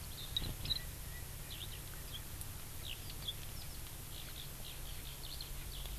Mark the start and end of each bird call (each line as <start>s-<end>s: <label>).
0.3s-2.3s: Erckel's Francolin (Pternistis erckelii)
1.5s-1.7s: Eurasian Skylark (Alauda arvensis)
5.2s-5.4s: Eurasian Skylark (Alauda arvensis)
5.7s-5.9s: Eurasian Skylark (Alauda arvensis)